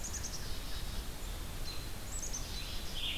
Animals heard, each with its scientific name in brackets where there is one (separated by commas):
Black-capped Chickadee (Poecile atricapillus), Red-eyed Vireo (Vireo olivaceus)